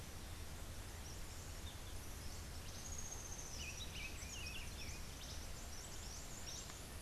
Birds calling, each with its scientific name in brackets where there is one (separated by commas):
Buff-throated Saltator (Saltator maximus), Rufous-tailed Hummingbird (Amazilia tzacatl), Cabanis's Wren (Cantorchilus modestus)